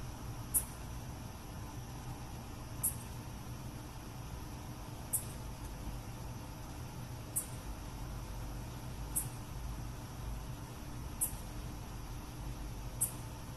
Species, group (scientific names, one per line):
Microcentrum rhombifolium
Orthoptera